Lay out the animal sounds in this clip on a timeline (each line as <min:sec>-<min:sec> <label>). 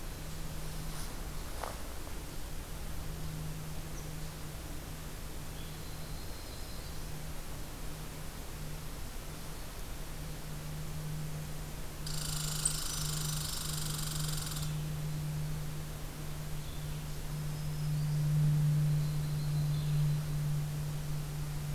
0:05.3-0:07.3 Yellow-rumped Warbler (Setophaga coronata)
0:11.9-0:14.8 Red Squirrel (Tamiasciurus hudsonicus)
0:17.2-0:18.4 Black-throated Green Warbler (Setophaga virens)
0:18.7-0:20.4 Yellow-rumped Warbler (Setophaga coronata)